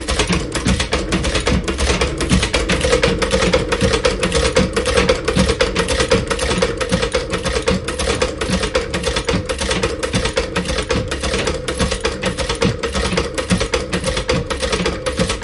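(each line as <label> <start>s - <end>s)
A vintage pedal-operated sewing machine from the 1920s is in active use, producing rhythmic mechanical clicking. 0.0s - 15.4s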